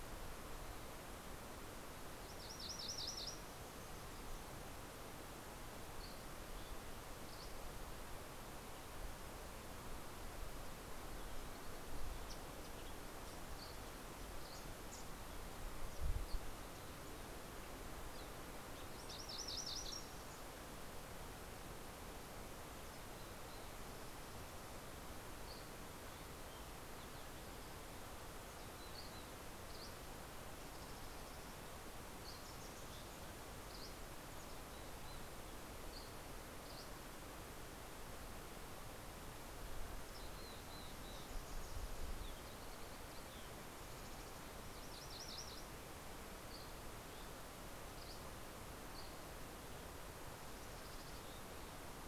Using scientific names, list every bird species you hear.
Geothlypis tolmiei, Empidonax oberholseri, Poecile gambeli